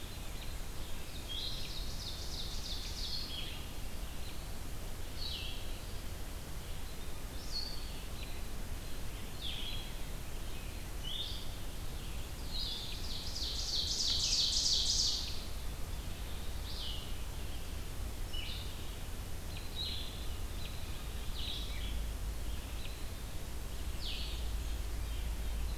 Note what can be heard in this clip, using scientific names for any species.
Turdus migratorius, Vireo solitarius, Seiurus aurocapilla